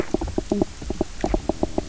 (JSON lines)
{"label": "biophony, knock croak", "recorder": "SoundTrap 300"}